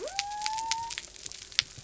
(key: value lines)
label: biophony
recorder: SoundTrap 300